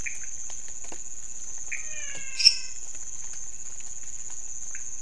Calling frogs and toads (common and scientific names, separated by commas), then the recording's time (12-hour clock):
pointedbelly frog (Leptodactylus podicipinus), menwig frog (Physalaemus albonotatus), lesser tree frog (Dendropsophus minutus)
3:00am